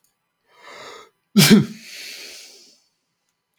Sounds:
Sneeze